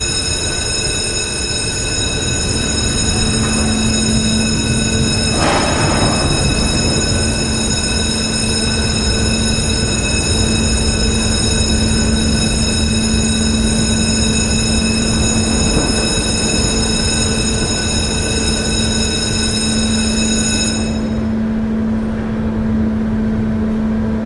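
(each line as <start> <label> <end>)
0.0 A siren is ringing loudly. 21.1
4.4 Heavy engine noise. 24.2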